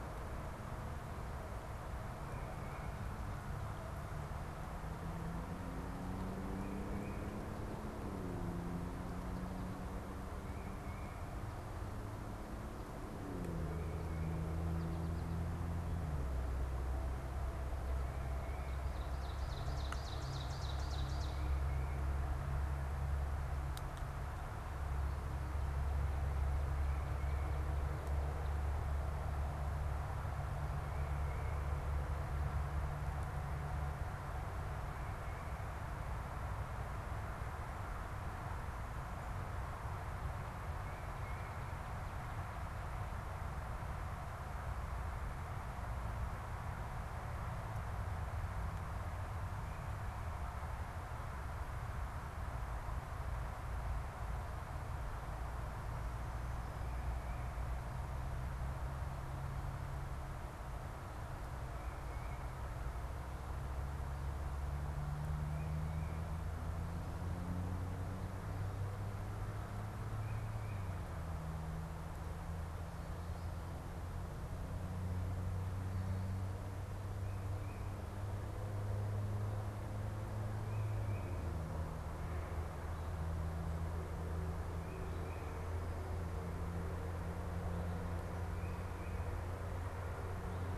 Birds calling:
Ovenbird (Seiurus aurocapilla)
Tufted Titmouse (Baeolophus bicolor)

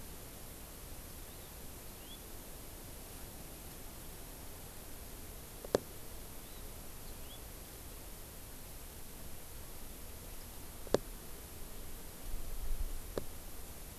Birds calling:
House Finch (Haemorhous mexicanus)

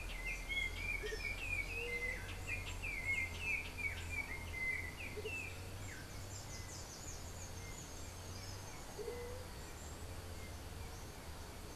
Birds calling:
White-tipped Dove (Leptotila verreauxi)
Yellow-backed Oriole (Icterus chrysater)
Andean Motmot (Momotus aequatorialis)

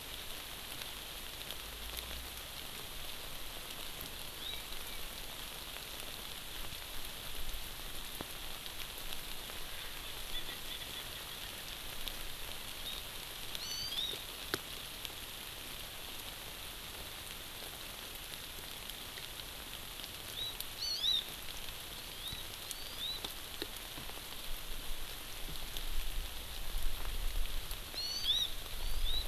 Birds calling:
Hawaii Amakihi (Chlorodrepanis virens)
Erckel's Francolin (Pternistis erckelii)

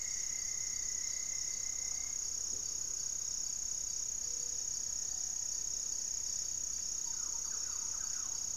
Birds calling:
unidentified bird
Great Antshrike (Taraba major)
Gray-fronted Dove (Leptotila rufaxilla)
Thrush-like Wren (Campylorhynchus turdinus)
Black-faced Antthrush (Formicarius analis)

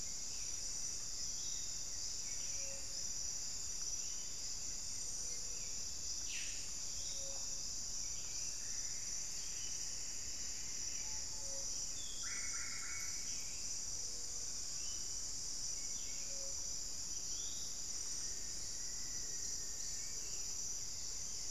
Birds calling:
Plumbeous Antbird (Myrmelastes hyperythrus)
Black-faced Cotinga (Conioptilon mcilhennyi)
Buff-throated Saltator (Saltator maximus)
Solitary Black Cacique (Cacicus solitarius)
unidentified bird
Black-faced Antthrush (Formicarius analis)

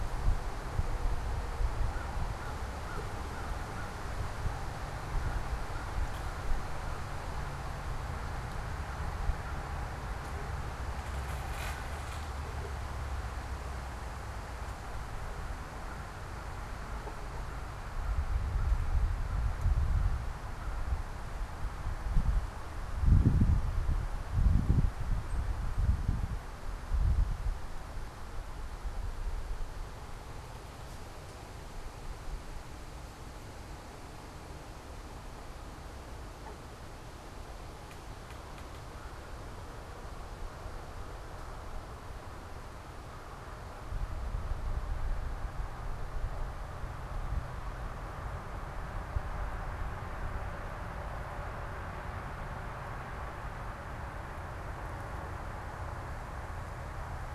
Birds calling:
unidentified bird

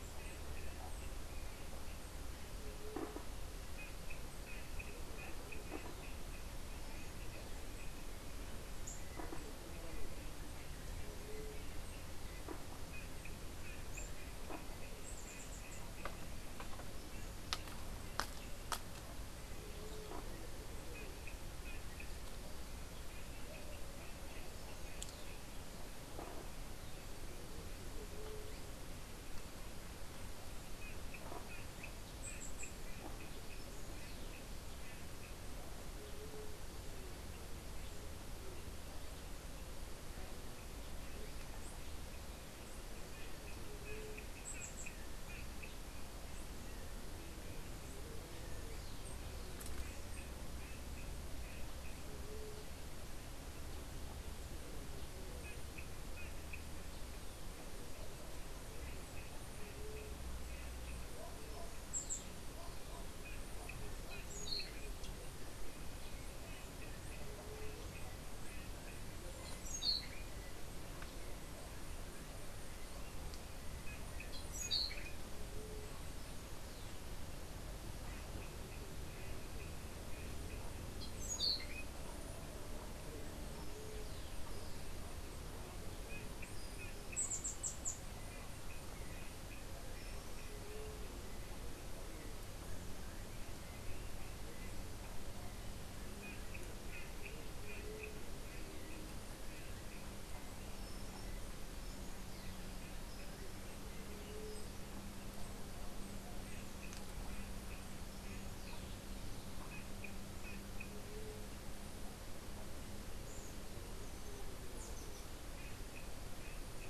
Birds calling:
Orange-billed Nightingale-Thrush (Catharus aurantiirostris)
unidentified bird

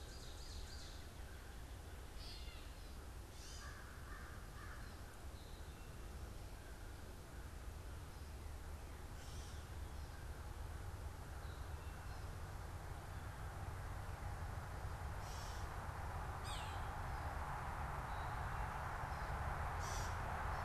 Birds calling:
American Crow (Corvus brachyrhynchos)
Gray Catbird (Dumetella carolinensis)
Ovenbird (Seiurus aurocapilla)

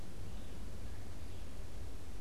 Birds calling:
Red-eyed Vireo (Vireo olivaceus)

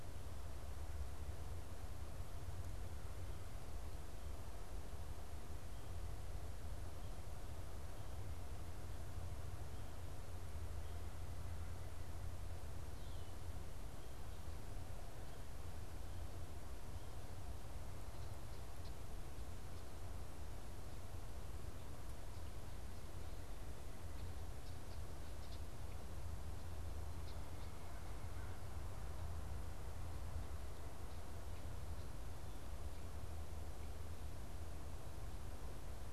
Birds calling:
Red-winged Blackbird (Agelaius phoeniceus)

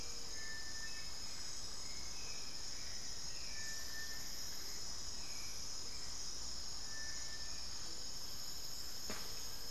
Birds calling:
Hauxwell's Thrush (Turdus hauxwelli)
Gray-fronted Dove (Leptotila rufaxilla)
Plain-winged Antshrike (Thamnophilus schistaceus)

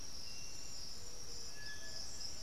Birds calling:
Striped Cuckoo (Tapera naevia)
unidentified bird

